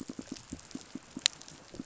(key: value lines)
label: biophony, pulse
recorder: SoundTrap 500